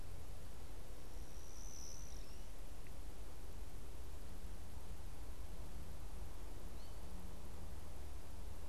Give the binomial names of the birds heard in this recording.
Spinus tristis